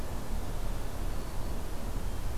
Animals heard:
forest ambience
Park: Acadia National Park